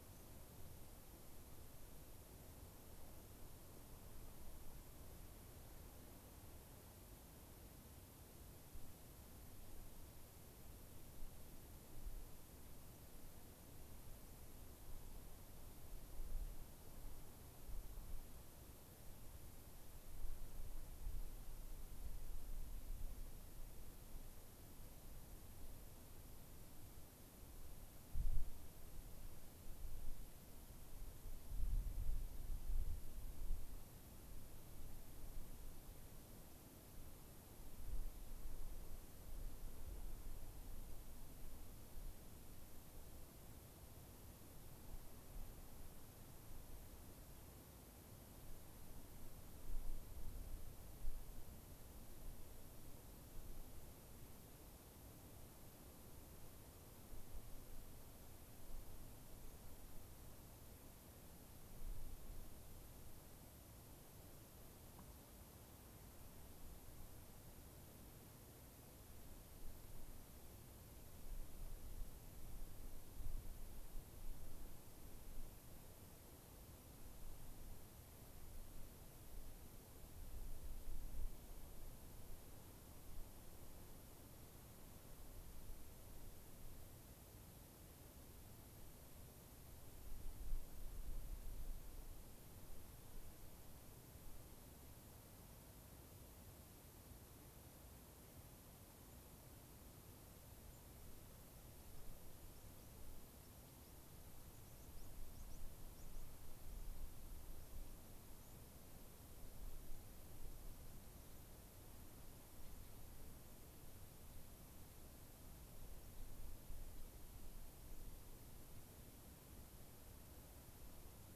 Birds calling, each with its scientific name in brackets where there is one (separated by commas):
unidentified bird, White-crowned Sparrow (Zonotrichia leucophrys)